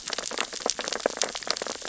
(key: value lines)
label: biophony, sea urchins (Echinidae)
recorder: SoundTrap 600 or HydroMoth